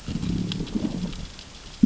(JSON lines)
{"label": "biophony, growl", "recorder": "SoundTrap 600 or HydroMoth"}